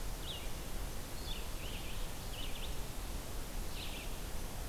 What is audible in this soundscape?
Red-eyed Vireo